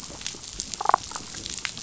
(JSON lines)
{"label": "biophony, damselfish", "recorder": "SoundTrap 500"}
{"label": "biophony", "recorder": "SoundTrap 500"}